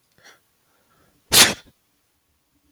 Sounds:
Sneeze